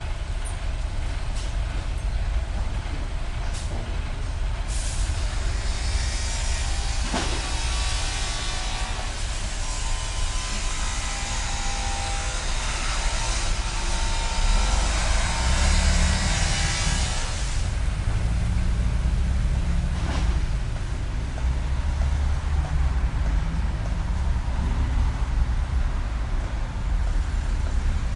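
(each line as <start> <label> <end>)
0.0 Construction sounds. 4.1
4.2 Power cutters and heavy cutting equipment operating at a construction site. 21.0
21.2 Drilling, demolition, and occasional hammering sounds at a construction site near a road. 28.1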